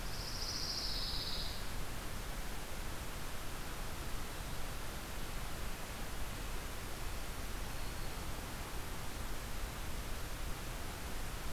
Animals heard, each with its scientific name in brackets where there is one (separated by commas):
Black-throated Green Warbler (Setophaga virens), Pine Warbler (Setophaga pinus)